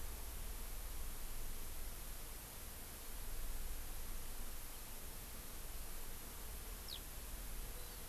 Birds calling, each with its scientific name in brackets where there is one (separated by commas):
Hawaii Amakihi (Chlorodrepanis virens), Eurasian Skylark (Alauda arvensis)